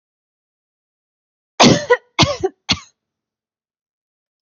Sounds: Cough